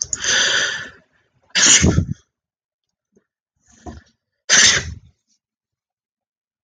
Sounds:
Sneeze